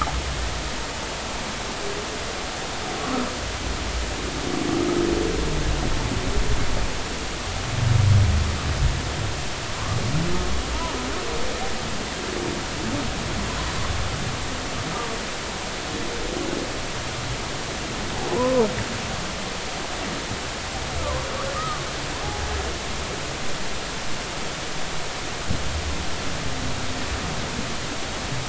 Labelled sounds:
18.3	18.7	humpback whale, 0.80 to 1.1 kHz
21.0	21.8	humpback whale, 0.96 to 1.3 kHz

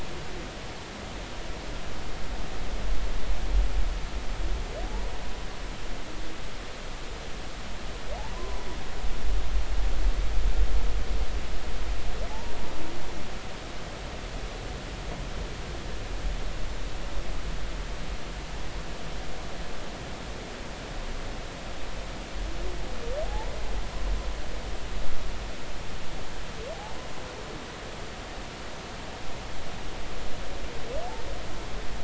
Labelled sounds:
4.9	5.1	humpback whale, 0.80 to 0.99 kHz
8.2	8.7	humpback whale, 0.80 to 1.1 kHz
12.3	12.5	humpback whale, 0.80 to 0.99 kHz
23.3	23.5	humpback whale, 0.80 to 1.0 kHz

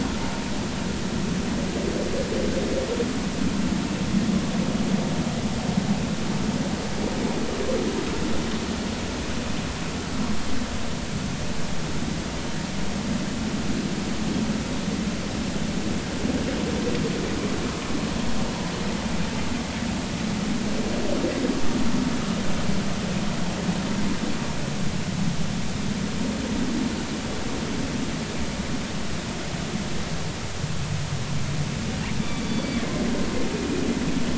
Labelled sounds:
32.2	32.8	killer whale, northern resident, G clan, GG subclan, call N44, 2.3 to 4.7 kHz

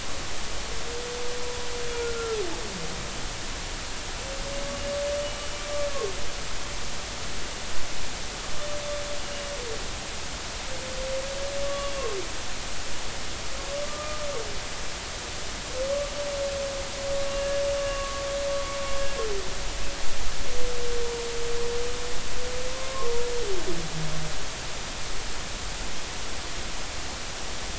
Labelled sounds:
2.1	2.4	humpback whale, 1.3 to 1.4 kHz
5.2	5.6	humpback whale, 2.9 to 3.0 kHz
11.6	11.9	humpback whale, 1.1 to 1.2 kHz
13.8	14.2	humpback whale, 1.15 to 1.25 kHz
17.8	18.2	humpback whale, 1.0 to 1.2 kHz
22.7	23.1	humpback whale, 1.0 to 1.2 kHz

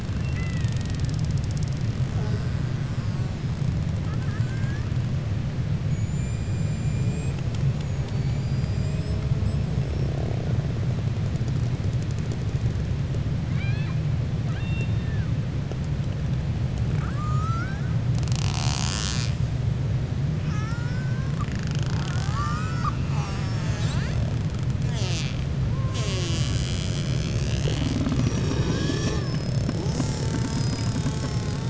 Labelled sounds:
4.0	4.9	killer whale, 1.0 to 2.2 kHz
8.0	9.2	killer whale, 3.5 to 5.4 kHz
13.4	14.0	killer whale, 1.1 to 4.8 kHz
16.9	17.9	killer whale, 0.80 to 2.3 kHz
20.4	21.5	killer whale, 0.89 to 2.6 kHz
21.9	23.0	killer whale, 0.78 to 2.6 kHz

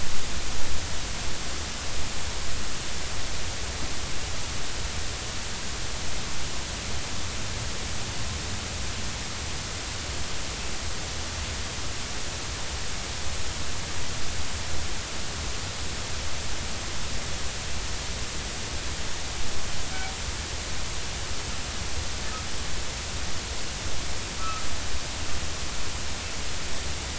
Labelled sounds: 24.4	24.7	humpback whale, 1.1 to 1.4 kHz

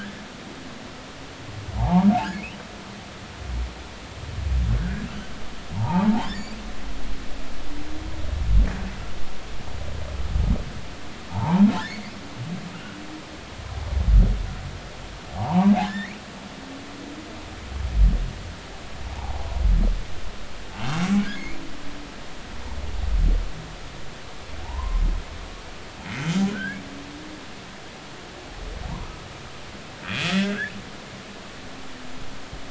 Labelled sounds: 1.8	2.6	humpback whale, 0.80 to 3.1 kHz
4.8	5.1	humpback whale, 1.4 to 1.8 kHz
5.7	6.6	humpback whale, 0.80 to 5.0 kHz
11.3	12.1	humpback whale, 0.80 to 4.9 kHz
15.3	16.2	humpback whale, 0.80 to 2.5 kHz
19.1	19.5	humpback whale, 0.80 to 0.99 kHz
20.7	21.6	humpback whale, 2.0 to 2.8 kHz
24.6	25.0	humpback whale, 0.80 to 1.1 kHz
26.1	26.8	humpback whale, 1.4 to 2.2 kHz
29.0	29.3	humpback whale, 1.2 to 1.3 kHz
30.0	30.7	humpback whale, 1.4 to 2.7 kHz

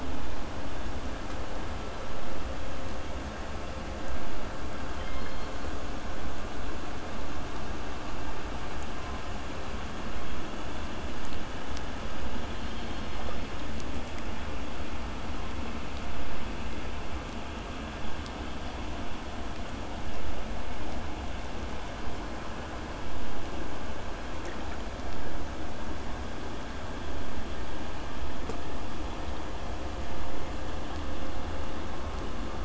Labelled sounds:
0.0	5.0	vessel noise, 0 to 8.0 kHz
5.0	5.7	killer whale, southern resident, K pod, call S16, 1.9 to 4.4 kHz
8.9	9.4	killer whale, southern resident, 0.85 to 1.9 kHz
10.2	10.5	killer whale, southern resident, 2.5 to 3.5 kHz
15.6	16.4	killer whale, southern resident, 0.97 to 3.5 kHz

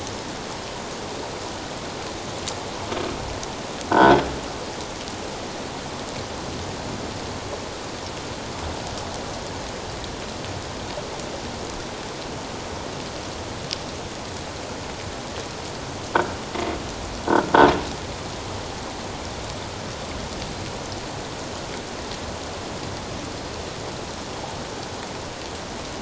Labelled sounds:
3.9	4.2	croaking sound likely from a nearby submerged object, 1.3 to 1.6 kHz
16.5	17.5	croaking sound likely from a nearby submerged object, 1.3 to 2.2 kHz

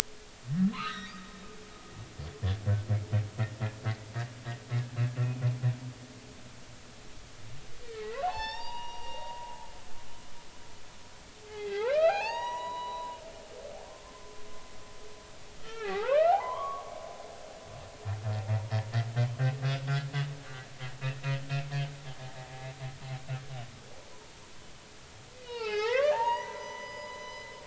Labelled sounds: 0.7	1.1	humpback whale, 0.99 to 4.2 kHz
7.8	9.5	humpback whale, 0.80 to 6.4 kHz
10.0	10.4	humpback whale, 3.0 to 3.2 kHz
11.5	13.2	humpback whale, 0.80 to 6.9 kHz
15.6	16.9	humpback whale, 0.80 to 3.4 kHz
22.2	22.5	humpback whale, 0.80 to 0.93 kHz
25.3	27.5	humpback whale, 0.80 to 6.0 kHz

